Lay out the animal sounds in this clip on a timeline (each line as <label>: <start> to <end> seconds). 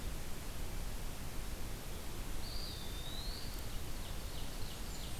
Eastern Wood-Pewee (Contopus virens): 2.1 to 4.1 seconds
Ovenbird (Seiurus aurocapilla): 3.4 to 5.2 seconds
Blackburnian Warbler (Setophaga fusca): 4.6 to 5.2 seconds